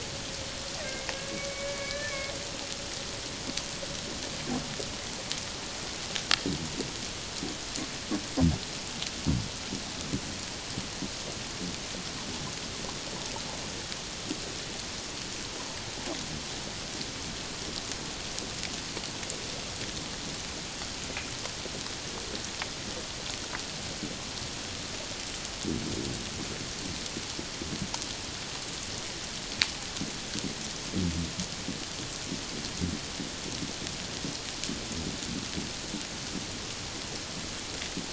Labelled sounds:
1.5	2.3	humpback whale, 1.6 to 2.4 kHz

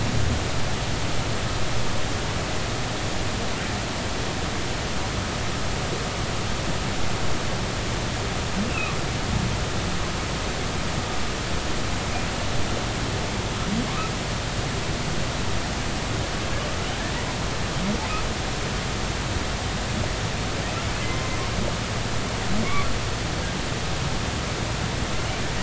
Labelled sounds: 8.7	8.9	humpback whale, 2.4 to 2.8 kHz

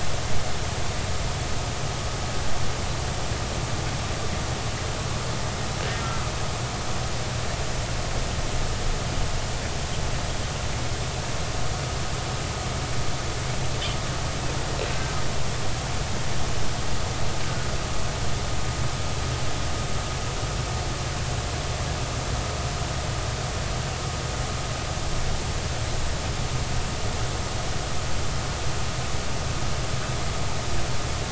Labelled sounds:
6.0	6.2	killer whale, northern resident, G clan, 1.2 to 1.4 kHz
14.9	15.2	killer whale, northern resident, G clan, 1.5 to 1.6 kHz

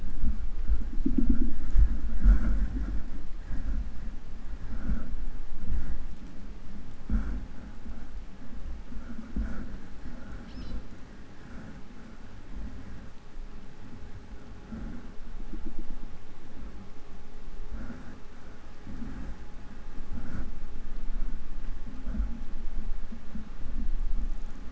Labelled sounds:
10.4	10.9	killer whale, southern resident, 1.0 to 6.5 kHz

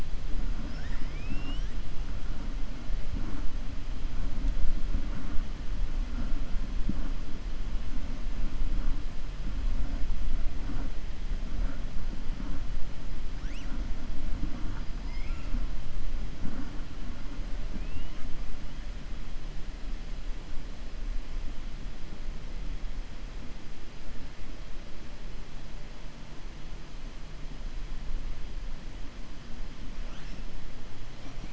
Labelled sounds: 0.6	1.7	killer whale, 0.31 to 7.5 kHz
15.0	15.5	killer whale, 1.3 to 3.5 kHz
17.7	18.2	killer whale, 1.3 to 3.8 kHz

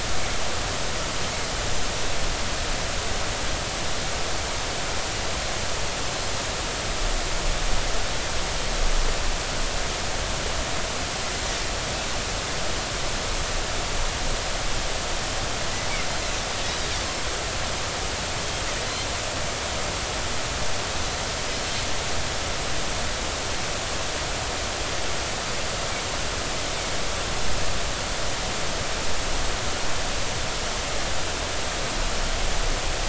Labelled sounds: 16.1	16.4	Pacific white-sided dolphin, 3.9 to 4.2 kHz

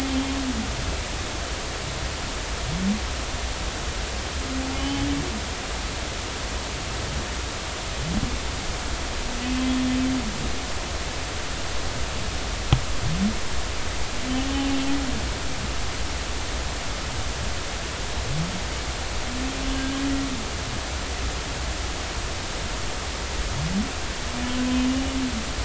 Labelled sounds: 4.8	5.1	humpback whale, 2.9 to 3.1 kHz
19.7	20.0	humpback whale, 1.5 to 1.7 kHz

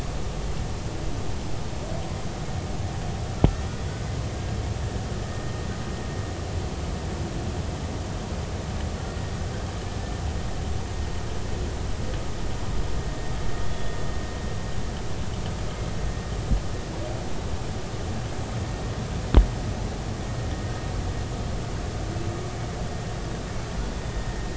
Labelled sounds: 13.6	14.0	humpback whale, 3.3 to 3.5 kHz

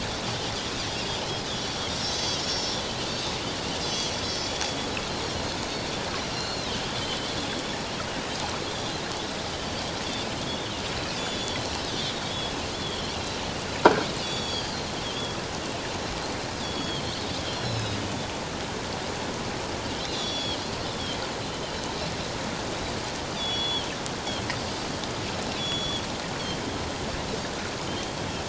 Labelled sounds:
1.5	2.8	Pacific white-sided dolphin, 3.0 to 6.9 kHz
3.1	4.8	Pacific white-sided dolphin, 3.2 to 6.6 kHz
6.2	6.7	Pacific white-sided dolphin, 2.6 to 4.4 kHz
8.7	8.9	Pacific white-sided dolphin, 3.2 to 3.7 kHz
10.4	11.6	Pacific white-sided dolphin, 3.2 to 7.0 kHz
12.0	13.4	Pacific white-sided dolphin, 3.0 to 4.1 kHz
14.2	15.4	Pacific white-sided dolphin, 3.1 to 6.9 kHz
16.6	18.0	Pacific white-sided dolphin, 2.5 to 5.6 kHz
20.0	21.2	Pacific white-sided dolphin, 2.9 to 5.8 kHz
23.4	23.9	Pacific white-sided dolphin, 2.7 to 3.7 kHz
25.6	26.0	Pacific white-sided dolphin, 3.2 to 6.8 kHz

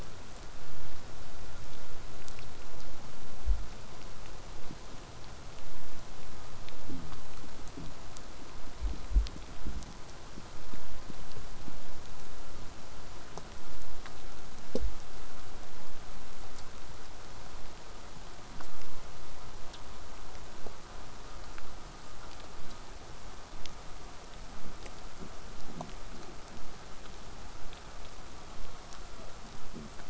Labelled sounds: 20.5	25.6	vessel noise, 0 to 8.0 kHz
28.4	29.3	killer whale, southern resident, 0.28 to 5.7 kHz

